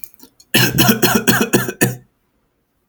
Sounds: Cough